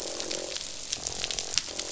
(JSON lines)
{"label": "biophony, croak", "recorder": "SoundTrap 500"}